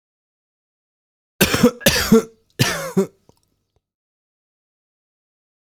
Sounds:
Cough